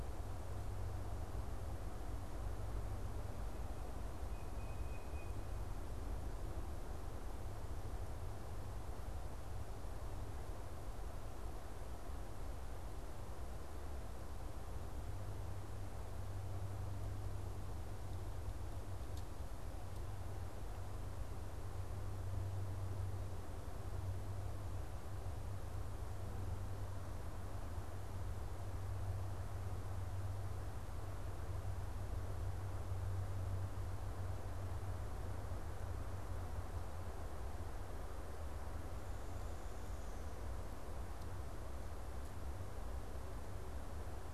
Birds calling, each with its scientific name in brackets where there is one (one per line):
Tufted Titmouse (Baeolophus bicolor)